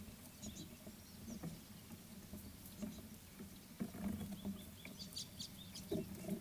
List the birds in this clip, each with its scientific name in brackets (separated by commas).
Chestnut Weaver (Ploceus rubiginosus)